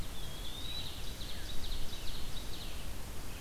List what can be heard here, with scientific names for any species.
Contopus virens, Vireo olivaceus, Seiurus aurocapilla